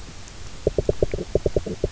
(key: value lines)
label: biophony, knock
recorder: SoundTrap 300